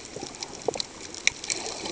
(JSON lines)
{"label": "ambient", "recorder": "HydroMoth"}